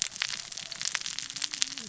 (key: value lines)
label: biophony, cascading saw
recorder: SoundTrap 600 or HydroMoth